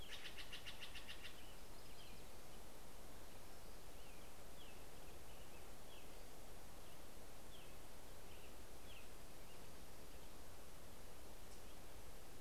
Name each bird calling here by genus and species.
Cyanocitta stelleri, Setophaga coronata, Turdus migratorius